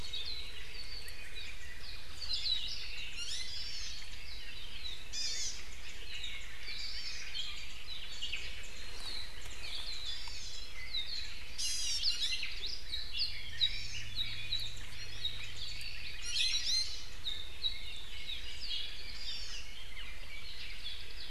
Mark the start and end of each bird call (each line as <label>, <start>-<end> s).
Hawaii Akepa (Loxops coccineus), 0.0-0.6 s
Apapane (Himatione sanguinea), 0.6-1.9 s
Hawaii Akepa (Loxops coccineus), 2.2-3.1 s
Iiwi (Drepanis coccinea), 3.1-3.6 s
Hawaii Amakihi (Chlorodrepanis virens), 3.4-4.0 s
Apapane (Himatione sanguinea), 4.2-5.1 s
Hawaii Amakihi (Chlorodrepanis virens), 5.1-5.6 s
Warbling White-eye (Zosterops japonicus), 5.6-6.6 s
Hawaii Amakihi (Chlorodrepanis virens), 6.7-7.3 s
Warbling White-eye (Zosterops japonicus), 7.3-7.8 s
Warbling White-eye (Zosterops japonicus), 8.1-8.9 s
Apapane (Himatione sanguinea), 8.9-9.4 s
Warbling White-eye (Zosterops japonicus), 9.3-10.7 s
Hawaii Akepa (Loxops coccineus), 9.6-10.2 s
Hawaii Amakihi (Chlorodrepanis virens), 10.0-10.6 s
Apapane (Himatione sanguinea), 10.8-11.4 s
Warbling White-eye (Zosterops japonicus), 11.1-11.4 s
Iiwi (Drepanis coccinea), 11.5-12.5 s
Hawaii Akepa (Loxops coccineus), 12.5-12.9 s
Apapane (Himatione sanguinea), 12.8-13.4 s
Red-billed Leiothrix (Leiothrix lutea), 12.8-14.8 s
Hawaii Amakihi (Chlorodrepanis virens), 13.5-14.1 s
Apapane (Himatione sanguinea), 14.1-14.8 s
Warbling White-eye (Zosterops japonicus), 14.4-14.9 s
Warbling White-eye (Zosterops japonicus), 15.3-15.8 s
Iiwi (Drepanis coccinea), 16.1-17.0 s
Apapane (Himatione sanguinea), 17.2-17.9 s
Hawaii Amakihi (Chlorodrepanis virens), 19.1-19.7 s
Apapane (Himatione sanguinea), 19.8-21.3 s